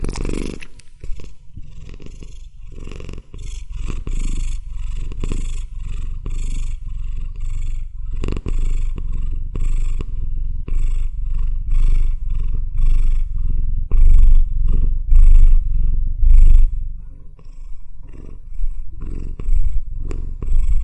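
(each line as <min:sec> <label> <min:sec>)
0:00.0 A cat is purring deeply in a droning manner. 0:20.8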